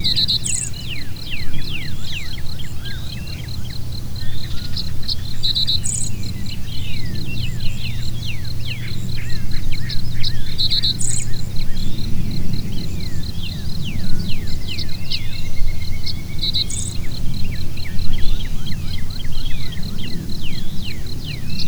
What animals were heard?
birds